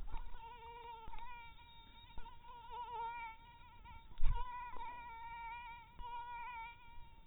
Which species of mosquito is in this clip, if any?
mosquito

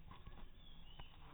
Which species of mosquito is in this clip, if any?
mosquito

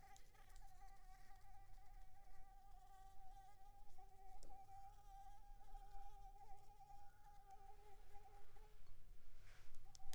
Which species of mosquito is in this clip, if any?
Anopheles arabiensis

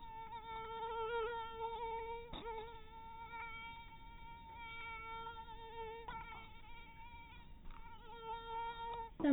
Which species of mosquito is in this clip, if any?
mosquito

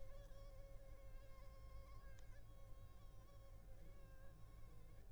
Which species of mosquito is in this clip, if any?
Culex pipiens complex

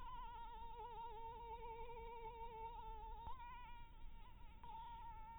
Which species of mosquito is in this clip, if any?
Anopheles maculatus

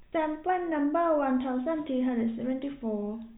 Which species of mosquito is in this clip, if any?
no mosquito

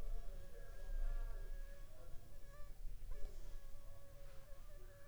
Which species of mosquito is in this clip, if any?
Anopheles funestus s.s.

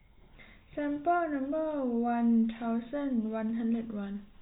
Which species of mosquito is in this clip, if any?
no mosquito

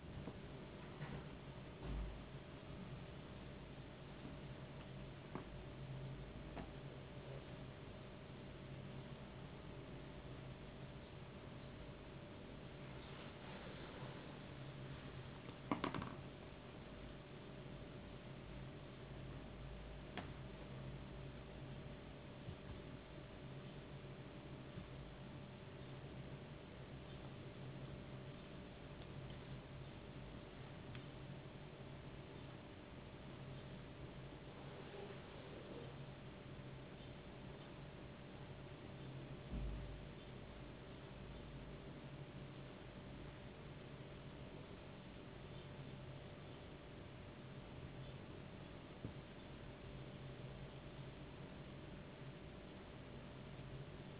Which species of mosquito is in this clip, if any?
no mosquito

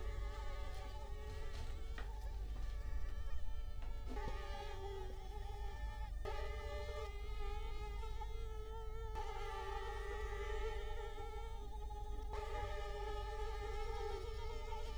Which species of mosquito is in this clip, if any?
Culex quinquefasciatus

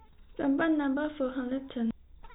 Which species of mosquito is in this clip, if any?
no mosquito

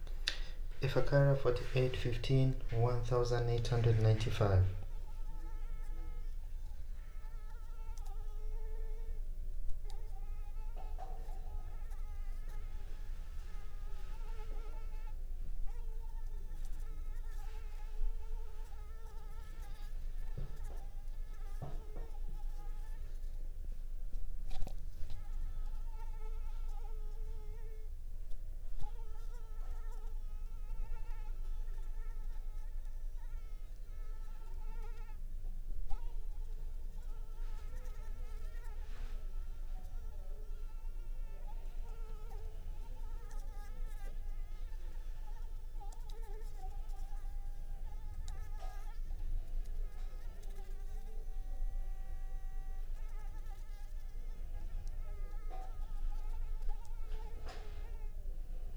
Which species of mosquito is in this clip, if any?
Anopheles arabiensis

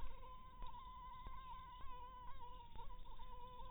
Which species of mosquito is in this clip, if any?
Anopheles maculatus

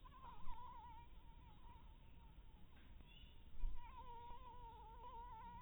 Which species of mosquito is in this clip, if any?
Anopheles dirus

